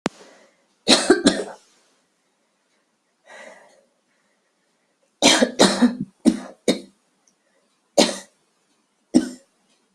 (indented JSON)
{
  "expert_labels": [
    {
      "quality": "good",
      "cough_type": "wet",
      "dyspnea": false,
      "wheezing": false,
      "stridor": false,
      "choking": false,
      "congestion": false,
      "nothing": true,
      "diagnosis": "lower respiratory tract infection",
      "severity": "mild"
    }
  ],
  "age": 46,
  "gender": "female",
  "respiratory_condition": false,
  "fever_muscle_pain": false,
  "status": "symptomatic"
}